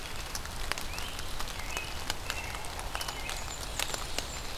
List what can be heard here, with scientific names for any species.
Myiarchus crinitus, Turdus migratorius, Setophaga fusca, Seiurus aurocapilla